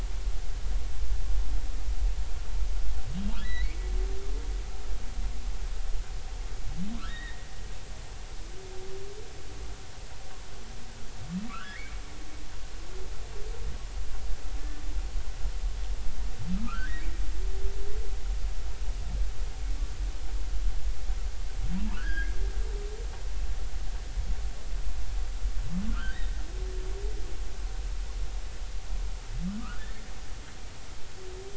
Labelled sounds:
3.4	3.8	humpback whale, 1.9 to 4.2 kHz
7.0	7.5	humpback whale, 0.99 to 3.8 kHz
11.5	12.0	humpback whale, 1.1 to 2.5 kHz
16.5	17.1	humpback whale, 1.2 to 2.0 kHz
21.9	22.3	humpback whale, 1.3 to 1.8 kHz
25.9	26.2	humpback whale, 1.2 to 1.7 kHz
29.6	29.8	humpback whale, 1.1 to 1.6 kHz

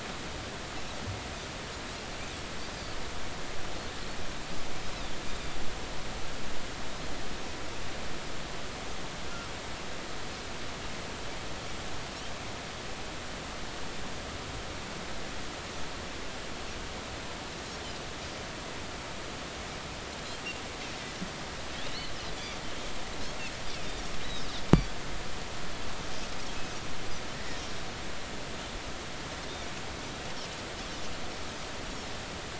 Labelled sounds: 5.3	5.6	Pacific white-sided dolphin, 3.4 to 3.8 kHz
21.9	22.1	Pacific white-sided dolphin, 2.8 to 3.1 kHz
27.3	27.6	Pacific white-sided dolphin, 1.7 to 2.1 kHz

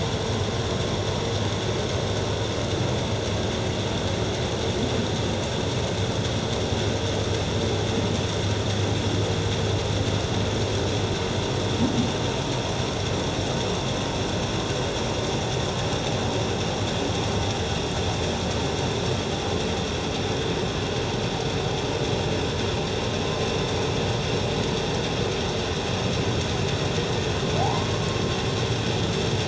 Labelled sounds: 27.8	28.1	humpback whale, 1.1 to 1.2 kHz

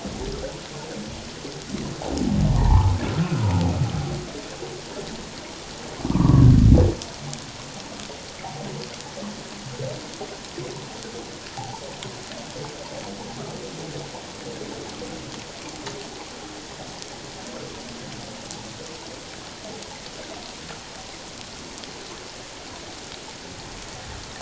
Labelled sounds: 2.5	3.3	humpback whale, 0.81 to 1.4 kHz
6.1	6.5	humpback whale, 0.91 to 1.3 kHz
11.6	11.8	humpback whale, 0.78 to 1.0 kHz

